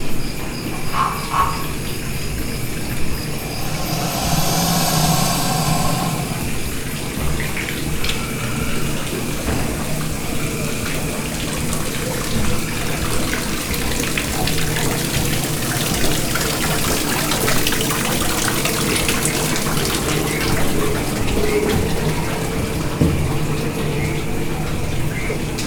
Is a person speaking?
no